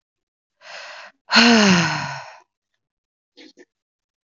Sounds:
Sigh